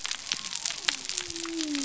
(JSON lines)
{"label": "biophony", "recorder": "SoundTrap 300"}